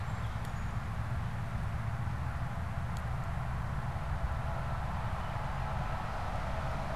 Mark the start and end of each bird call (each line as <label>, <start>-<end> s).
Song Sparrow (Melospiza melodia), 0.0-1.1 s